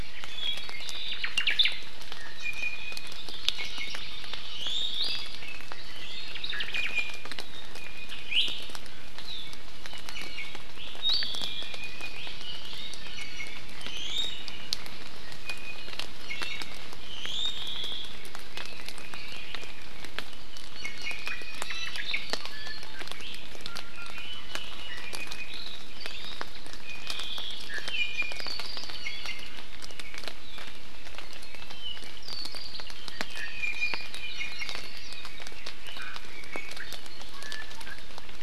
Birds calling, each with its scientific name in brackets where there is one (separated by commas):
Omao (Myadestes obscurus), Red-billed Leiothrix (Leiothrix lutea), Hawaii Amakihi (Chlorodrepanis virens), Apapane (Himatione sanguinea), Iiwi (Drepanis coccinea)